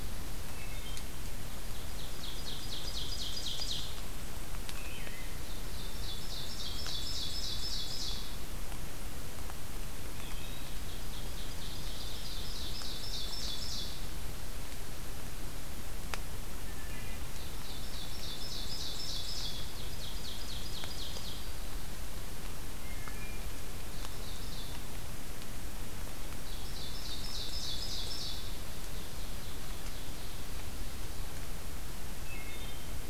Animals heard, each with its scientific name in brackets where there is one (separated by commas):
Wood Thrush (Hylocichla mustelina), Ovenbird (Seiurus aurocapilla)